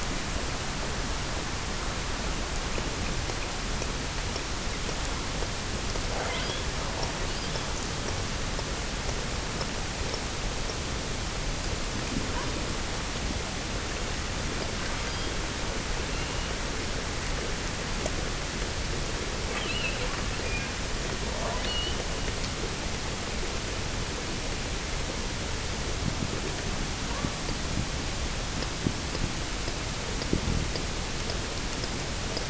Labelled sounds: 6.1	6.8	killer whale, offshore, 0.50 to 5.1 kHz
7.2	7.9	killer whale, offshore, 2.8 to 5.2 kHz
15.0	15.5	killer whale, offshore, 3.0 to 4.9 kHz
16.0	16.6	killer whale, offshore, 2.5 to 4.3 kHz
19.5	22.1	killer whale, offshore, 0.52 to 5.0 kHz

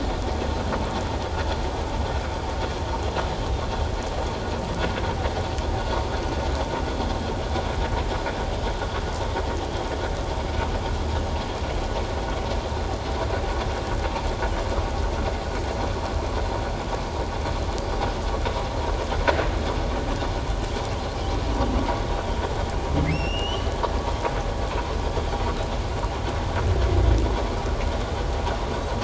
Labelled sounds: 23.1	23.7	humpback whale, 2.5 to 5.7 kHz

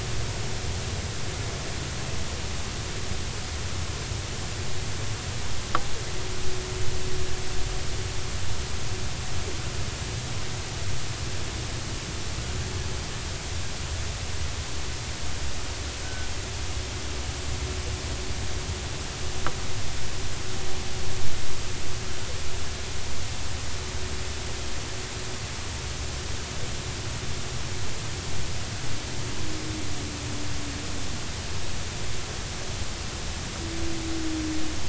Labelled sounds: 16.0	16.3	humpback whale, 1.4 to 1.6 kHz

